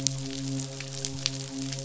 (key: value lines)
label: biophony, midshipman
recorder: SoundTrap 500